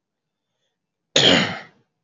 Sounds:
Cough